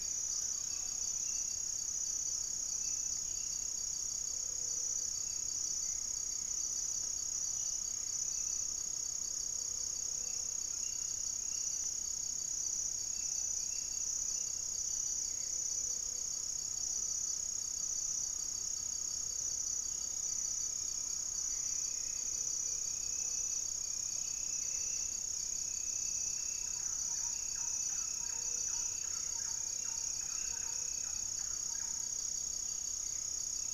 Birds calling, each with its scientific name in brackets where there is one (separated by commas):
Great Antshrike (Taraba major), Gray-fronted Dove (Leptotila rufaxilla), Hauxwell's Thrush (Turdus hauxwelli), unidentified bird, Thrush-like Wren (Campylorhynchus turdinus)